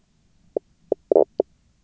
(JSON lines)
{"label": "biophony, knock croak", "recorder": "SoundTrap 300"}